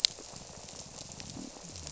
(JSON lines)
{"label": "biophony", "recorder": "SoundTrap 300"}